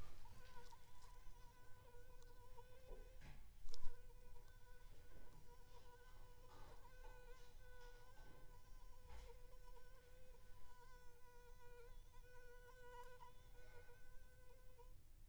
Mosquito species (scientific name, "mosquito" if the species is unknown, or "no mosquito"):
Anopheles gambiae s.l.